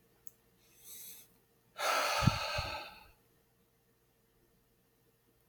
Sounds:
Sigh